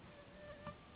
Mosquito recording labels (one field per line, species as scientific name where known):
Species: Anopheles gambiae s.s.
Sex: female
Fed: unfed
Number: one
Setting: insect culture